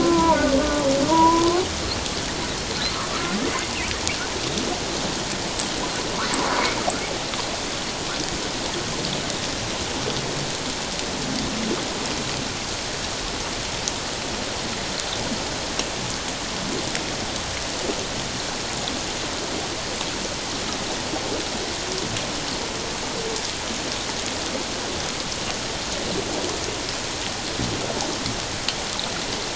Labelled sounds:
0.0	1.6	humpback whale, 0.88 to 1.4 kHz
3.1	3.4	humpback whale, 1.1 to 1.5 kHz

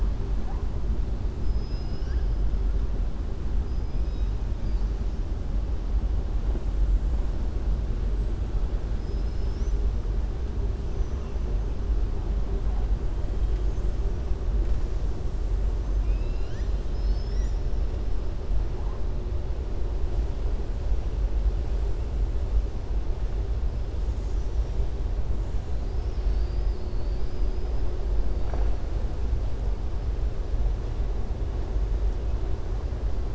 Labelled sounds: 1.4	2.3	killer whale, southern resident, 1.5 to 6.1 kHz
3.6	4.3	killer whale, southern resident, 3.5 to 5.1 kHz
8.9	9.8	killer whale, southern resident, 4.2 to 6.6 kHz

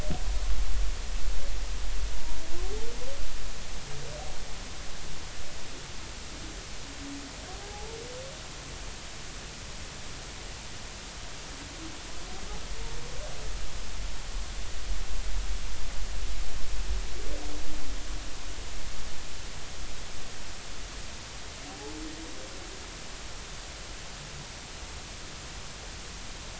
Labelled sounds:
7.7	8.0	humpback whale, 0.80 to 0.96 kHz

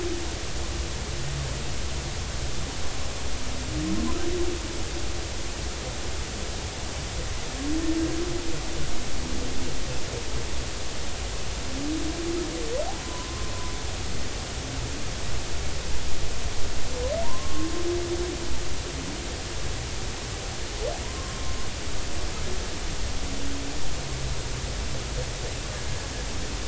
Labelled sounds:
13.0	13.5	humpback whale, 0.96 to 1.1 kHz
17.2	17.7	humpback whale, 0.90 to 1.1 kHz
21.0	21.6	humpback whale, 0.93 to 1.1 kHz

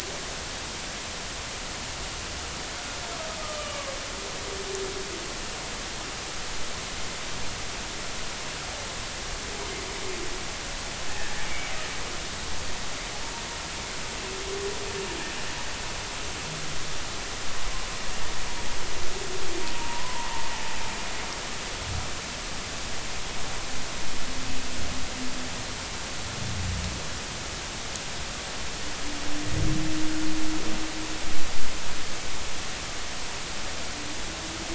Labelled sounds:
3.4	3.8	humpback whale, 1.1 to 3.1 kHz
11.2	11.5	humpback whale, 1.6 to 1.9 kHz
19.7	20.3	humpback whale, 0.86 to 1.1 kHz

